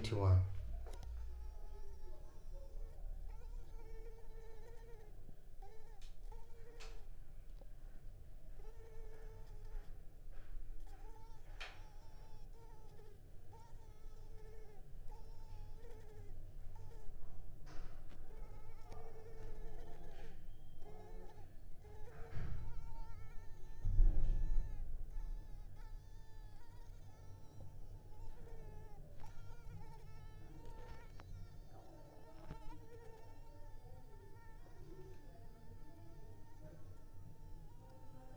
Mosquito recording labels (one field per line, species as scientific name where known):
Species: Culex pipiens complex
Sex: female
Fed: unfed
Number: one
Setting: cup